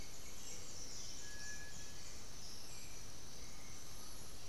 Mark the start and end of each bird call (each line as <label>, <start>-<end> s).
Black-billed Thrush (Turdus ignobilis), 0.0-4.5 s
White-winged Becard (Pachyramphus polychopterus), 0.0-4.5 s
Cinereous Tinamou (Crypturellus cinereus), 0.9-2.1 s
Undulated Tinamou (Crypturellus undulatus), 2.7-4.5 s